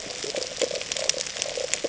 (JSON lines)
{"label": "ambient", "recorder": "HydroMoth"}